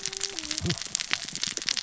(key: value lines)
label: biophony, cascading saw
recorder: SoundTrap 600 or HydroMoth